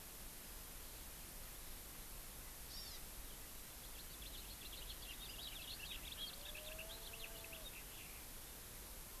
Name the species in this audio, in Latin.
Chlorodrepanis virens, Haemorhous mexicanus